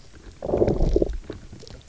{"label": "biophony, low growl", "recorder": "SoundTrap 300"}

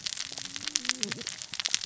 {"label": "biophony, cascading saw", "recorder": "SoundTrap 600 or HydroMoth"}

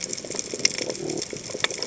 {"label": "biophony", "recorder": "HydroMoth"}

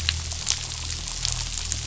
{"label": "anthrophony, boat engine", "recorder": "SoundTrap 500"}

